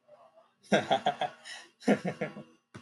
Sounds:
Laughter